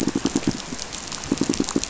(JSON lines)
{"label": "biophony, pulse", "recorder": "SoundTrap 500"}